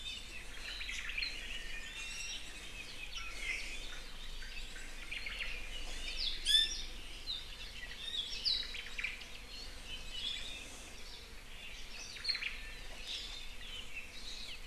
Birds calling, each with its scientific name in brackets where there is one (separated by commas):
Omao (Myadestes obscurus), Apapane (Himatione sanguinea), Iiwi (Drepanis coccinea)